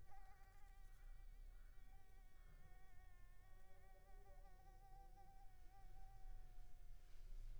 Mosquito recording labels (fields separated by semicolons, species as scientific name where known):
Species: Anopheles arabiensis; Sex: female; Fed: unfed; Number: one; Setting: cup